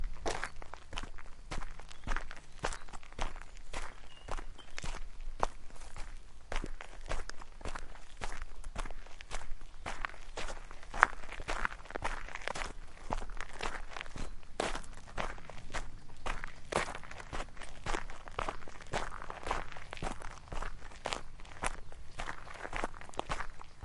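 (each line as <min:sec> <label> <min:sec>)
0:00.0 Footsteps on gravel. 0:23.8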